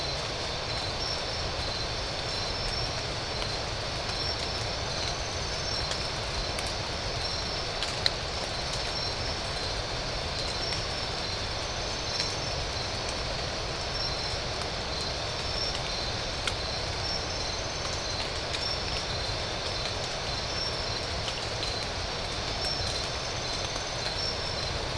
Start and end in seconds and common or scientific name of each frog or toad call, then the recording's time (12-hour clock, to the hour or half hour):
none
~1am